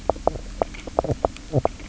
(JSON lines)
{"label": "biophony, knock croak", "recorder": "SoundTrap 300"}